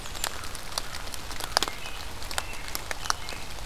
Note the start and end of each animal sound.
0.2s-1.7s: American Crow (Corvus brachyrhynchos)
1.6s-3.5s: American Robin (Turdus migratorius)

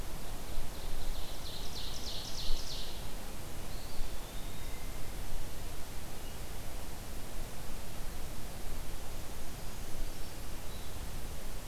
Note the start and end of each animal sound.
0.6s-3.3s: Ovenbird (Seiurus aurocapilla)
3.4s-5.3s: Eastern Wood-Pewee (Contopus virens)
9.1s-10.8s: Brown Creeper (Certhia americana)

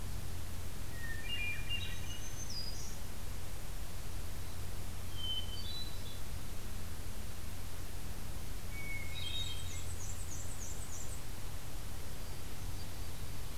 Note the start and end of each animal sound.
0.9s-2.4s: Hermit Thrush (Catharus guttatus)
1.8s-3.0s: Black-throated Green Warbler (Setophaga virens)
5.1s-6.2s: Hermit Thrush (Catharus guttatus)
8.7s-9.9s: Hermit Thrush (Catharus guttatus)
9.1s-11.3s: Black-and-white Warbler (Mniotilta varia)

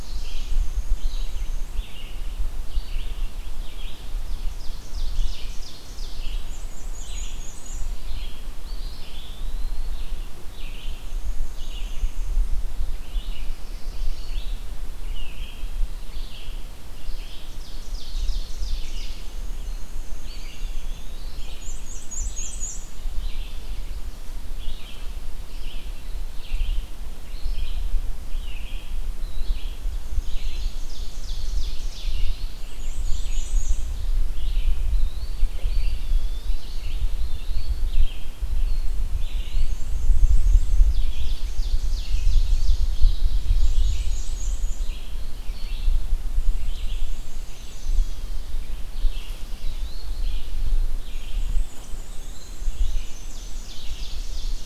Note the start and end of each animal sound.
0.0s-2.1s: Black-and-white Warbler (Mniotilta varia)
0.0s-53.6s: Red-eyed Vireo (Vireo olivaceus)
4.3s-6.4s: Ovenbird (Seiurus aurocapilla)
6.3s-8.1s: Black-and-white Warbler (Mniotilta varia)
8.6s-10.1s: Eastern Wood-Pewee (Contopus virens)
10.6s-12.4s: Black-and-white Warbler (Mniotilta varia)
17.0s-19.5s: Ovenbird (Seiurus aurocapilla)
18.9s-23.2s: Black-and-white Warbler (Mniotilta varia)
20.1s-21.8s: Eastern Wood-Pewee (Contopus virens)
30.0s-32.6s: Ovenbird (Seiurus aurocapilla)
32.5s-34.1s: Black-and-white Warbler (Mniotilta varia)
34.7s-36.8s: Eastern Wood-Pewee (Contopus virens)
39.1s-39.9s: Eastern Wood-Pewee (Contopus virens)
39.2s-41.2s: Black-and-white Warbler (Mniotilta varia)
40.8s-43.4s: Ovenbird (Seiurus aurocapilla)
43.4s-45.1s: Black-and-white Warbler (Mniotilta varia)
46.1s-48.4s: Black-and-white Warbler (Mniotilta varia)
51.2s-53.5s: Black-and-white Warbler (Mniotilta varia)
53.2s-54.6s: Ovenbird (Seiurus aurocapilla)

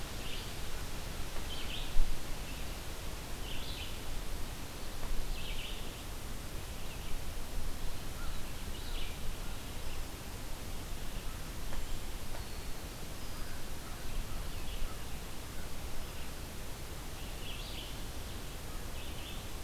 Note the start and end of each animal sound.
0.0s-19.6s: Red-eyed Vireo (Vireo olivaceus)
8.1s-9.7s: American Crow (Corvus brachyrhynchos)
12.2s-12.9s: Eastern Wood-Pewee (Contopus virens)
13.4s-16.6s: American Crow (Corvus brachyrhynchos)

